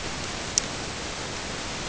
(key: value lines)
label: ambient
recorder: HydroMoth